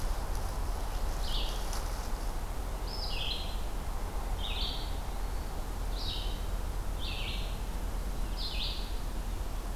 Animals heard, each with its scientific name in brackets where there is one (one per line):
Eastern Wood-Pewee (Contopus virens)
Red-eyed Vireo (Vireo olivaceus)